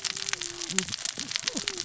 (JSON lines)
{"label": "biophony, cascading saw", "recorder": "SoundTrap 600 or HydroMoth"}